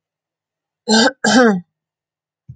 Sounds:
Throat clearing